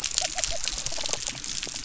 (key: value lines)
label: biophony
recorder: SoundTrap 300